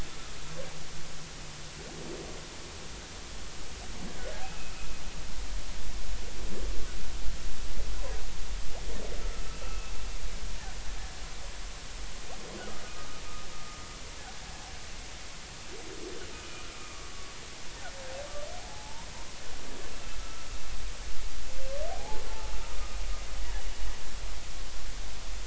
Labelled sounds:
9.6	9.9	humpback whale, 1.2 to 2.7 kHz
16.3	17.1	humpback whale, 1.1 to 2.5 kHz
18.5	19.1	humpback whale, 0.80 to 1.1 kHz
20.2	20.5	humpback whale, 1.2 to 1.4 kHz
21.9	22.6	humpback whale, 0.80 to 0.96 kHz

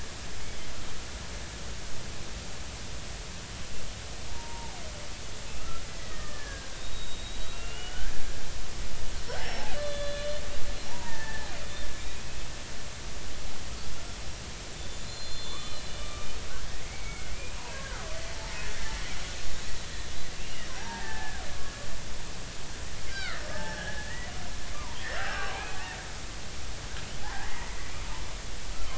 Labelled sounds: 4.3	4.8	killer whale, Bigg's (transient), 0.80 to 0.99 kHz
5.6	8.1	killer whale, Bigg's (transient), 1.2 to 3.9 kHz
9.4	10.4	killer whale, Bigg's (transient), 1.7 to 5.5 kHz
10.9	11.5	killer whale, Bigg's (transient), 0.80 to 1.9 kHz
11.9	12.5	killer whale, Bigg's (transient), 2.1 to 2.6 kHz
14.7	17.3	killer whale, Bigg's (transient), 0.99 to 4.2 kHz
18.7	19.1	killer whale, Bigg's (transient), 1.2 to 1.7 kHz
20.3	22.2	killer whale, Bigg's (transient), 0.80 to 2.9 kHz
23.1	24.3	killer whale, Bigg's (transient), 1.2 to 2.4 kHz
24.7	25.8	killer whale, Bigg's (transient), 0.80 to 2.6 kHz
27.4	27.9	killer whale, Bigg's (transient), 1.9 to 2.3 kHz

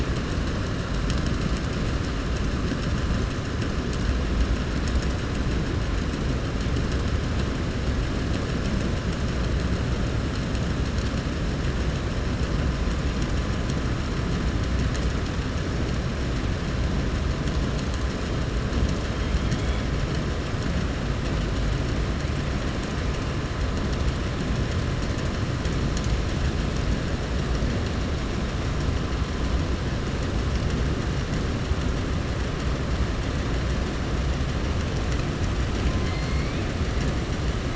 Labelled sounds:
19.4	19.8	killer whale, southern resident, 1.8 to 4.1 kHz
35.9	36.6	killer whale, southern resident, 1.2 to 5.0 kHz

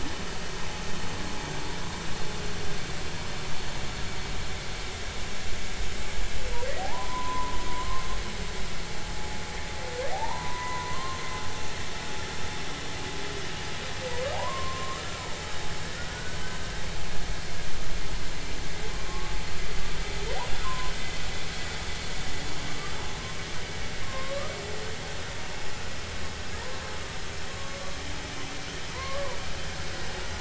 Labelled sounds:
6.8	8.0	humpback whale, 0.80 to 1.1 kHz
10.1	11.2	humpback whale, 0.80 to 2.0 kHz
14.3	15.0	humpback whale, 0.80 to 1.2 kHz
15.9	16.7	humpback whale, 1.4 to 1.7 kHz
19.1	19.4	humpback whale, 1.0 to 1.2 kHz
20.6	20.9	humpback whale, 0.96 to 1.1 kHz
22.7	22.9	humpback whale, 1.1 to 1.2 kHz
24.0	24.4	humpback whale, 0.99 to 1.2 kHz
27.5	27.8	humpback whale, 1.1 to 1.2 kHz
28.9	29.4	humpback whale, 0.90 to 1.2 kHz

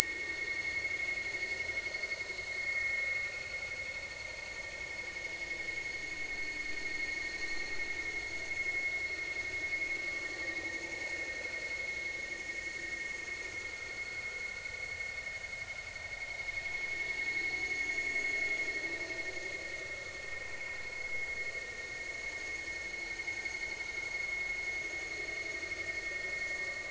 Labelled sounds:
0.0	0.9	vessel noise, 1.8 to 4.6 kHz
9.7	9.9	vessel noise, 2.1 to 2.5 kHz
14.3	14.5	vessel noise, 1.3 to 1.5 kHz

